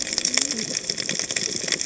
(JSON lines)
{"label": "biophony, cascading saw", "recorder": "HydroMoth"}